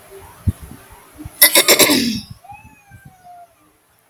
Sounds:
Throat clearing